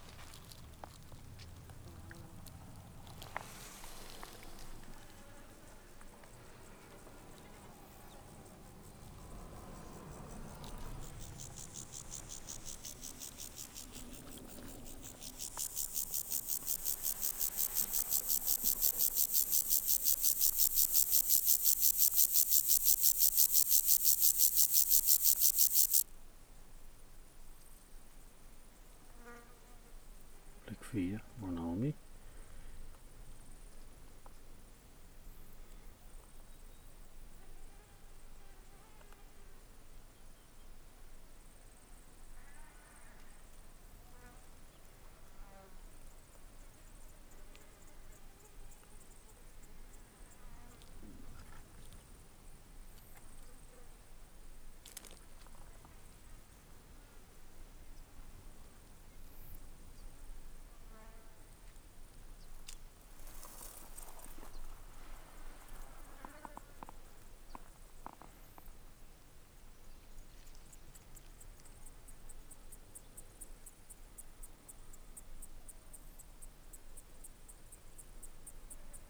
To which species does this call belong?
Chorthippus vagans